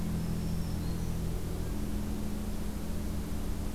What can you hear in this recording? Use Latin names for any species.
Setophaga virens